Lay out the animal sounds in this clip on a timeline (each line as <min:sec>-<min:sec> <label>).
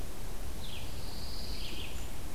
0:00.0-0:02.3 Red-eyed Vireo (Vireo olivaceus)
0:00.7-0:01.9 Pine Warbler (Setophaga pinus)